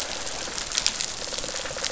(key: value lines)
label: biophony
recorder: SoundTrap 500